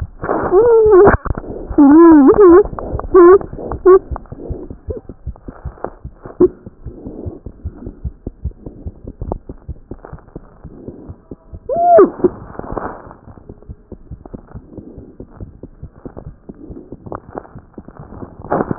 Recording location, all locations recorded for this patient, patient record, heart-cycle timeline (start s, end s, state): aortic valve (AV)
aortic valve (AV)+pulmonary valve (PV)+tricuspid valve (TV)
#Age: Child
#Sex: Female
#Height: 85.0 cm
#Weight: 11.9 kg
#Pregnancy status: False
#Murmur: Absent
#Murmur locations: nan
#Most audible location: nan
#Systolic murmur timing: nan
#Systolic murmur shape: nan
#Systolic murmur grading: nan
#Systolic murmur pitch: nan
#Systolic murmur quality: nan
#Diastolic murmur timing: nan
#Diastolic murmur shape: nan
#Diastolic murmur grading: nan
#Diastolic murmur pitch: nan
#Diastolic murmur quality: nan
#Outcome: Normal
#Campaign: 2015 screening campaign
0.00	7.91	unannotated
7.91	8.03	systole
8.03	8.10	systole
8.10	8.26	diastole
8.26	8.31	S1
8.31	8.43	systole
8.43	8.52	S2
8.52	8.65	diastole
8.65	8.70	S1
8.70	8.84	systole
8.84	8.92	S2
8.92	9.06	diastole
9.06	9.11	S1
9.11	9.26	systole
9.26	9.32	S2
9.32	9.47	diastole
9.47	9.53	S1
9.53	9.67	systole
9.67	9.75	S2
9.75	9.90	diastole
9.90	9.95	S1
9.95	10.11	systole
10.11	10.17	S2
10.17	10.33	diastole
10.33	10.39	S1
10.39	10.62	systole
10.62	10.69	S2
10.69	10.87	diastole
10.87	10.92	S1
10.92	11.07	systole
11.07	11.13	S2
11.13	11.29	diastole
11.29	11.36	S1
11.36	11.51	systole
11.51	11.59	S2
11.59	18.78	unannotated